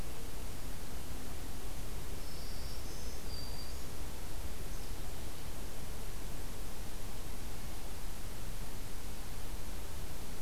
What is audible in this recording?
Black-throated Green Warbler, Black-capped Chickadee